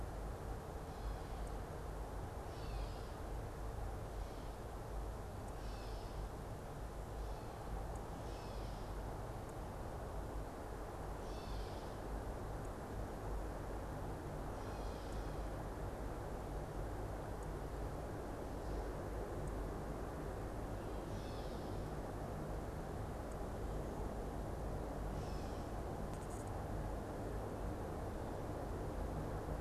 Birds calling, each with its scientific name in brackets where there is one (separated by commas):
Gray Catbird (Dumetella carolinensis)